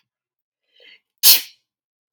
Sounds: Sneeze